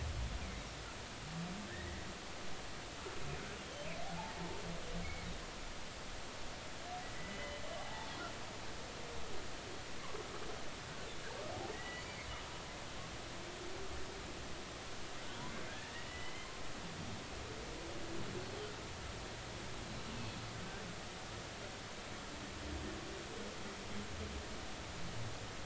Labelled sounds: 1.7	2.0	humpback whale, 1.5 to 2.1 kHz
3.6	3.9	humpback whale, 3.0 to 3.3 kHz
7.0	8.1	humpback whale, 0.80 to 3.1 kHz
11.7	12.0	humpback whale, 1.8 to 2.0 kHz
15.7	16.5	humpback whale, 1.5 to 3.1 kHz

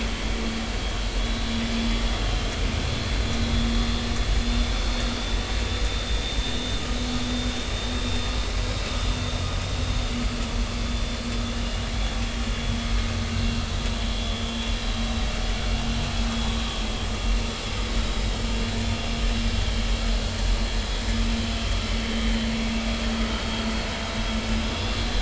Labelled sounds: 3.8	4.1	vessel noise, 3.4 to 3.6 kHz
5.9	6.2	vessel noise, 3.5 to 3.7 kHz
10.1	10.4	vessel noise, 4.6 to 4.7 kHz
11.5	12.8	vessel noise, 2.8 to 3.5 kHz
13.3	13.7	vessel noise, 2.7 to 2.8 kHz
24.6	25.0	vessel noise, 3.3 to 3.6 kHz

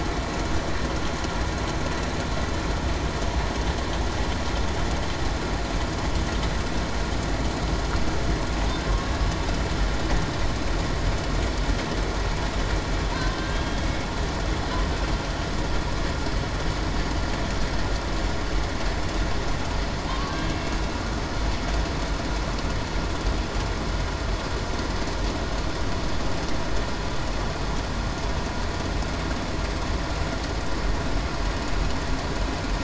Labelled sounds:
20.4	20.9	killer whale, Bigg's (transient), 2.7 to 2.8 kHz

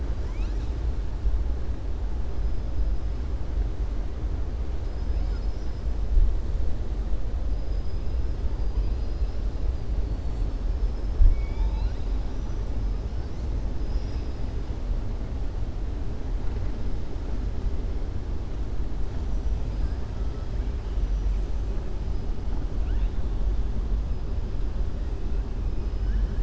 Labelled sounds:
7.5	8.3	killer whale, southern resident, 4.9 to 5.4 kHz
11.2	12.2	killer whale, southern resident, 0.87 to 5.8 kHz
25.9	26.4	killer whale, southern resident, 1.5 to 2.5 kHz

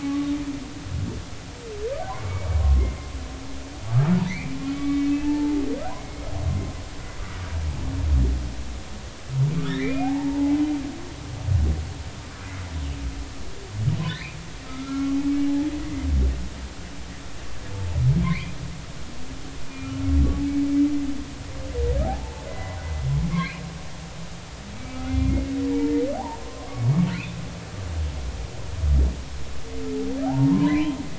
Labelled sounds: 2.6	2.9	humpback whale, 1.0 to 1.1 kHz
4.3	6.3	humpback whale, 0.83 to 2.7 kHz
9.7	10.6	humpback whale, 0.80 to 2.5 kHz
14.1	15.2	humpback whale, 1.1 to 2.7 kHz
18.2	18.6	humpback whale, 1.8 to 2.6 kHz
19.7	19.9	humpback whale, 2.3 to 2.5 kHz
22.0	22.8	humpback whale, 0.80 to 2.1 kHz
23.3	23.6	humpback whale, 1.9 to 2.7 kHz
24.7	25.5	humpback whale, 2.0 to 2.4 kHz
26.4	27.4	humpback whale, 0.99 to 2.7 kHz
30.2	31.0	humpback whale, 0.80 to 1.1 kHz

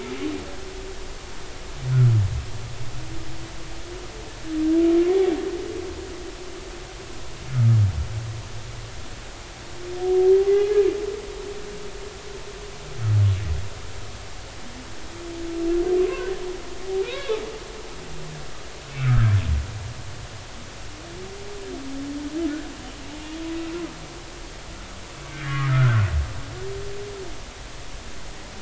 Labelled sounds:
7.5	7.8	humpback whale, 1.2 to 1.5 kHz
16.0	16.3	humpback whale, 0.96 to 1.1 kHz
17.1	17.4	humpback whale, 1.0 to 4.0 kHz
18.9	19.3	humpback whale, 1.2 to 2.4 kHz
25.4	26.0	humpback whale, 1.1 to 2.0 kHz

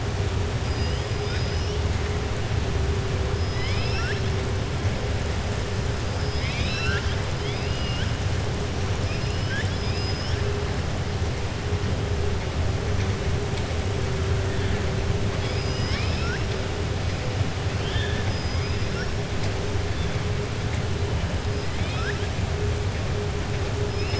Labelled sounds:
3.5	4.2	killer whale, southern resident, 1.3 to 5.7 kHz
6.1	8.1	killer whale, southern resident, 1.4 to 6.1 kHz
9.0	10.4	killer whale, southern resident, 1.6 to 5.5 kHz
15.3	16.4	killer whale, southern resident, 1.3 to 6.0 kHz
17.7	18.7	killer whale, southern resident, 1.7 to 5.1 kHz
21.7	22.3	killer whale, southern resident, 1.3 to 4.2 kHz

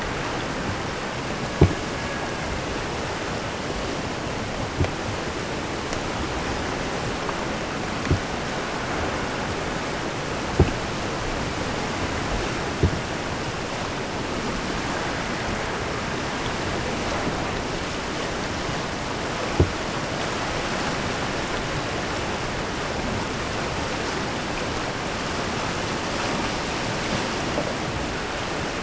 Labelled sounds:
1.1	2.7	killer whale, Bigg's (transient), AT1 transient, 0.36 to 2.5 kHz

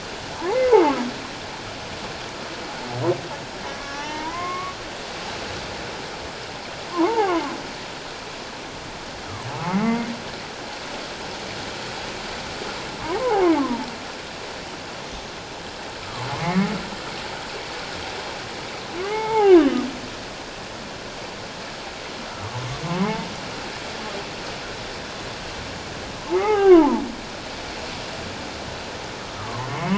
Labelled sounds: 3.8	4.8	humpback whale, 0.84 to 2.2 kHz
6.9	7.5	humpback whale, 0.78 to 1.3 kHz
9.5	10.1	humpback whale, 0.78 to 2.3 kHz
13.2	13.9	humpback whale, 0.78 to 1.2 kHz
16.0	16.7	humpback whale, 1.0 to 2.3 kHz
19.0	19.8	humpback whale, 0.78 to 3.1 kHz
23.0	23.3	humpback whale, 0.78 to 0.94 kHz
26.3	27.0	humpback whale, 0.78 to 3.1 kHz
29.4	29.9	humpback whale, 0.84 to 2.2 kHz

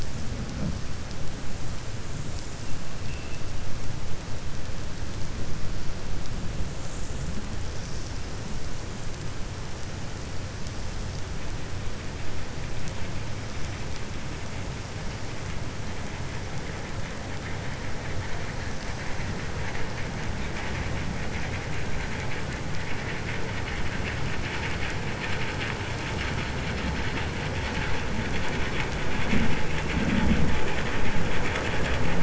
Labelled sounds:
3.0	3.4	vessel noise, 2.5 to 3.5 kHz

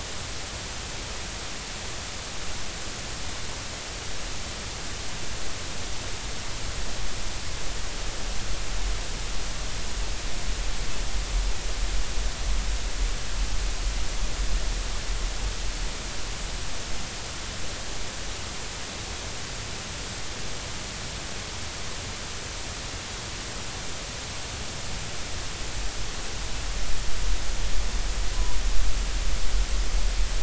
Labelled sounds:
28.3	28.6	killer whale, northern resident, 0.93 to 1.1 kHz

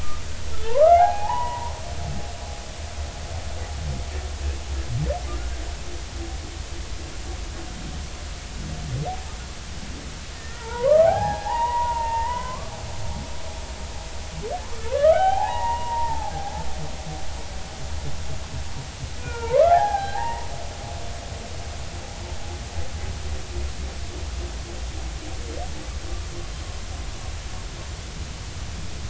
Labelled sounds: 0.5	1.7	humpback whale, 0.80 to 2.0 kHz
10.3	12.7	humpback whale, 0.80 to 3.1 kHz
14.9	16.7	humpback whale, 0.80 to 3.3 kHz
19.2	20.5	humpback whale, 0.80 to 2.0 kHz

